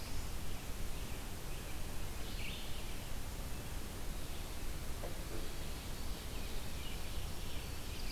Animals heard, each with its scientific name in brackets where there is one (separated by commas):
Red-eyed Vireo (Vireo olivaceus), Black-throated Green Warbler (Setophaga virens), Ovenbird (Seiurus aurocapilla)